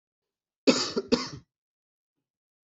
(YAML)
expert_labels:
- quality: ok
  cough_type: dry
  dyspnea: false
  wheezing: false
  stridor: false
  choking: false
  congestion: false
  nothing: true
  diagnosis: healthy cough
  severity: pseudocough/healthy cough
- quality: good
  cough_type: dry
  dyspnea: false
  wheezing: false
  stridor: false
  choking: false
  congestion: false
  nothing: true
  diagnosis: COVID-19
  severity: mild
- quality: good
  cough_type: dry
  dyspnea: false
  wheezing: false
  stridor: false
  choking: false
  congestion: false
  nothing: true
  diagnosis: healthy cough
  severity: pseudocough/healthy cough
- quality: good
  cough_type: dry
  dyspnea: false
  wheezing: false
  stridor: false
  choking: false
  congestion: false
  nothing: true
  diagnosis: upper respiratory tract infection
  severity: mild